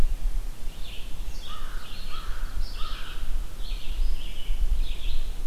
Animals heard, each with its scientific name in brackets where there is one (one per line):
American Crow (Corvus brachyrhynchos)
Red-eyed Vireo (Vireo olivaceus)